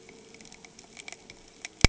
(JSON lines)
{"label": "anthrophony, boat engine", "recorder": "HydroMoth"}